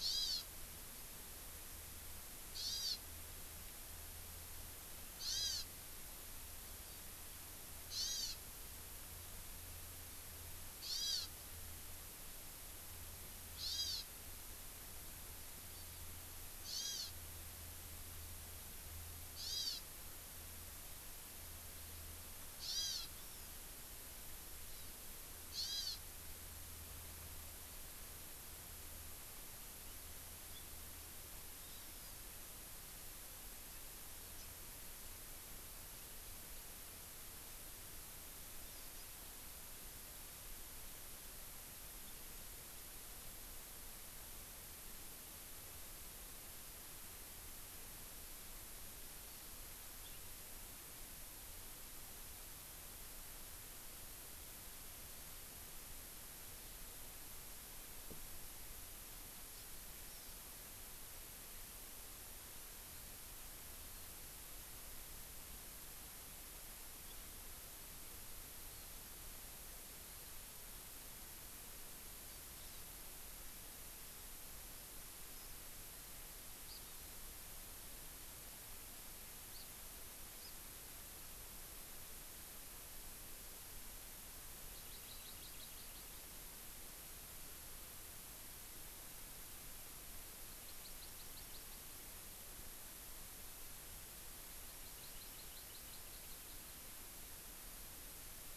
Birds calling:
Hawaii Amakihi (Chlorodrepanis virens)

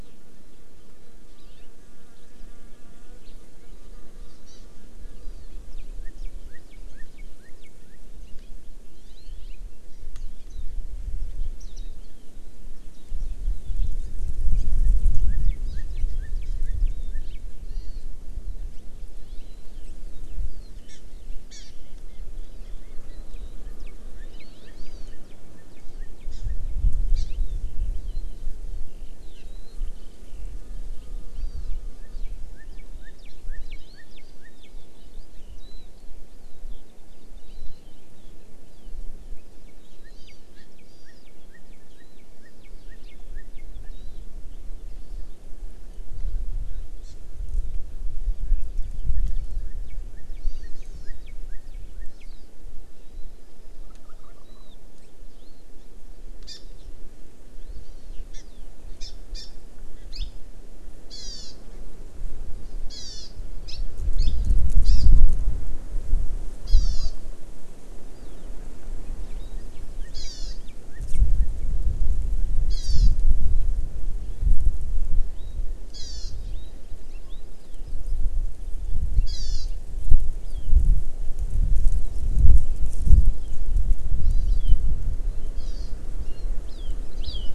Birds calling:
Warbling White-eye (Zosterops japonicus)
Eurasian Skylark (Alauda arvensis)
Northern Cardinal (Cardinalis cardinalis)
Hawaii Amakihi (Chlorodrepanis virens)

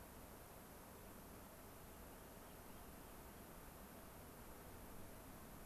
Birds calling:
Rock Wren (Salpinctes obsoletus)

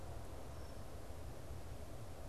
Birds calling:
Red-winged Blackbird (Agelaius phoeniceus)

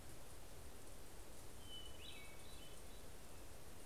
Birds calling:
Hermit Thrush (Catharus guttatus)

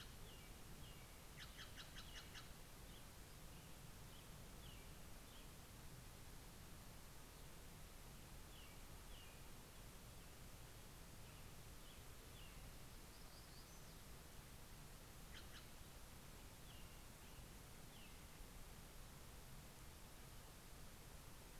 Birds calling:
Steller's Jay (Cyanocitta stelleri)
American Robin (Turdus migratorius)
Black-throated Gray Warbler (Setophaga nigrescens)

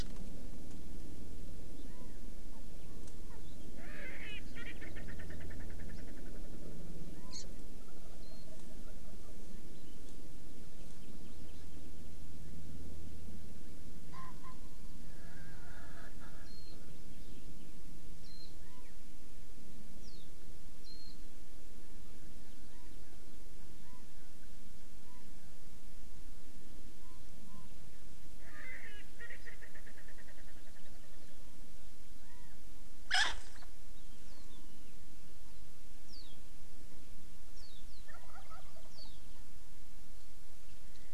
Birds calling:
Wild Turkey (Meleagris gallopavo)
Erckel's Francolin (Pternistis erckelii)
Warbling White-eye (Zosterops japonicus)
Hawaii Amakihi (Chlorodrepanis virens)

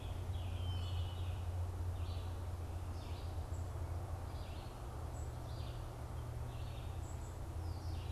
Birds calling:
Red-eyed Vireo (Vireo olivaceus)
Scarlet Tanager (Piranga olivacea)
Red-winged Blackbird (Agelaius phoeniceus)

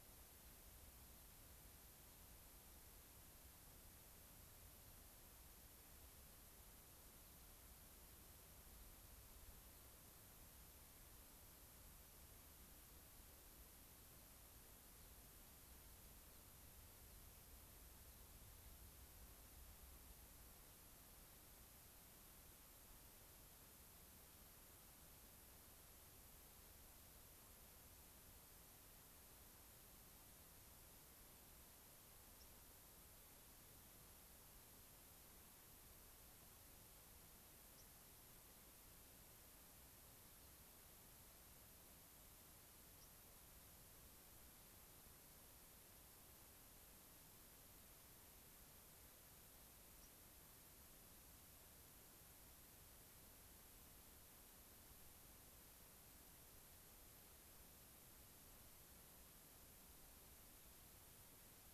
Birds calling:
White-crowned Sparrow (Zonotrichia leucophrys)

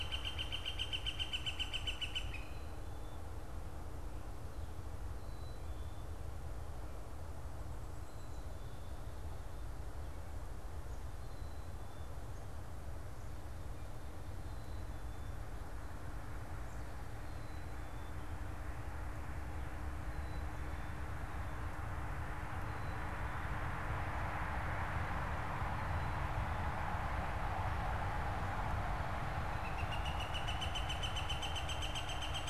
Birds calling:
Black-capped Chickadee (Poecile atricapillus)
Northern Flicker (Colaptes auratus)

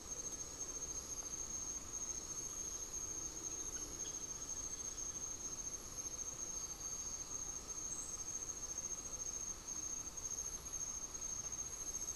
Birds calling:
unidentified bird

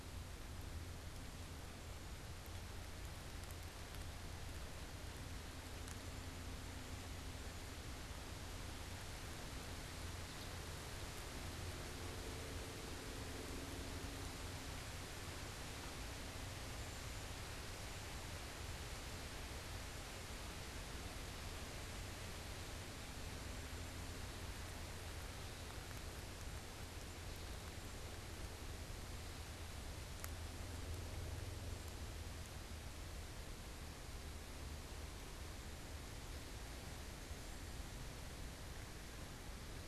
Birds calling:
Cedar Waxwing (Bombycilla cedrorum)

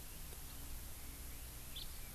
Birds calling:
Chinese Hwamei (Garrulax canorus)
House Finch (Haemorhous mexicanus)

